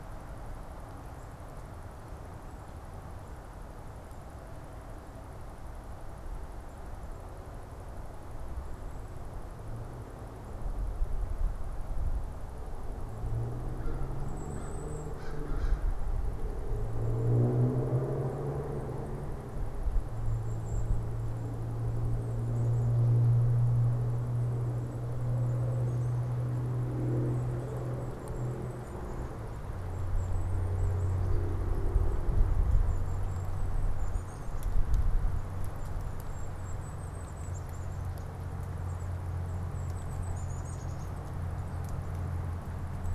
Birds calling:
Golden-crowned Kinglet (Regulus satrapa), American Crow (Corvus brachyrhynchos)

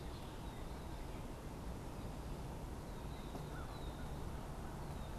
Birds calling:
American Crow (Corvus brachyrhynchos), Red-winged Blackbird (Agelaius phoeniceus)

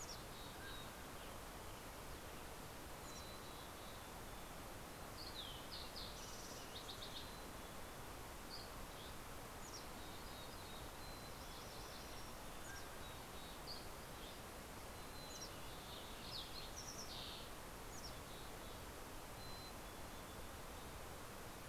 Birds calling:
Mountain Chickadee (Poecile gambeli), MacGillivray's Warbler (Geothlypis tolmiei), Fox Sparrow (Passerella iliaca), Dusky Flycatcher (Empidonax oberholseri), Mountain Quail (Oreortyx pictus)

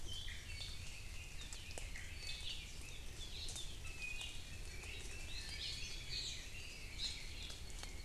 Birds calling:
Apapane (Himatione sanguinea), Iiwi (Drepanis coccinea), Red-billed Leiothrix (Leiothrix lutea)

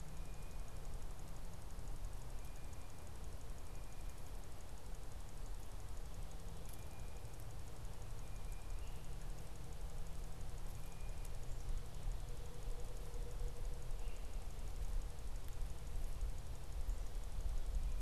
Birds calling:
Blue Jay (Cyanocitta cristata), Great Crested Flycatcher (Myiarchus crinitus)

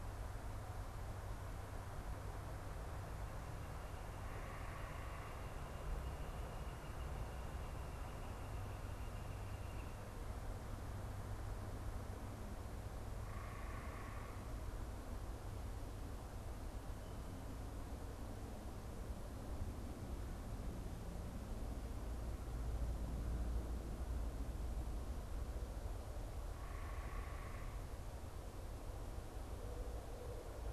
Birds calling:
unidentified bird

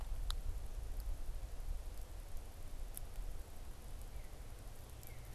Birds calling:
Northern Cardinal (Cardinalis cardinalis)

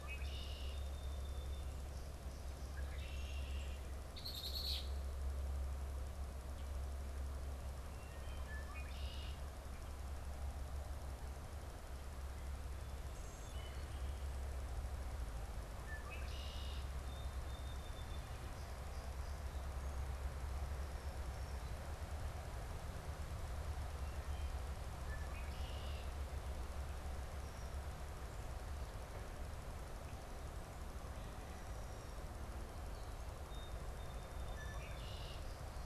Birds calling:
Red-winged Blackbird (Agelaius phoeniceus), Wood Thrush (Hylocichla mustelina), Song Sparrow (Melospiza melodia)

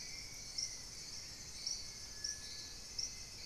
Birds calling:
Hauxwell's Thrush (Turdus hauxwelli)

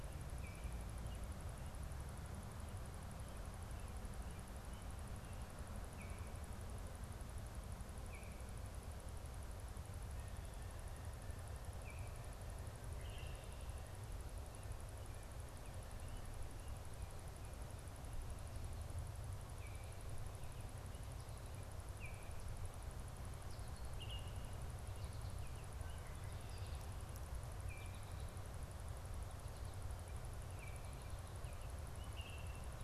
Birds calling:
Baltimore Oriole (Icterus galbula)

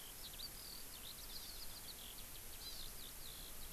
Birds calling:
Hawaii Amakihi (Chlorodrepanis virens), Eurasian Skylark (Alauda arvensis)

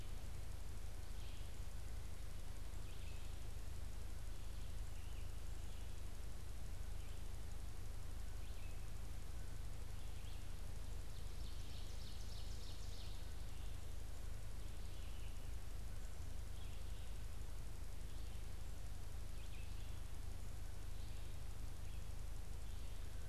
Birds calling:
Red-eyed Vireo (Vireo olivaceus), Ovenbird (Seiurus aurocapilla)

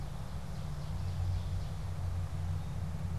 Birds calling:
Ovenbird (Seiurus aurocapilla)

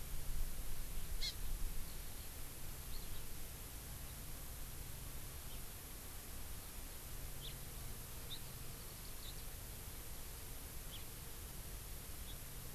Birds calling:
House Finch (Haemorhous mexicanus), Eurasian Skylark (Alauda arvensis), Hawaii Amakihi (Chlorodrepanis virens)

